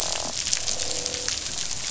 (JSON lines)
{"label": "biophony, croak", "recorder": "SoundTrap 500"}